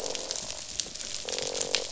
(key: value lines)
label: biophony, croak
recorder: SoundTrap 500